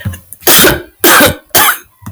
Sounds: Sneeze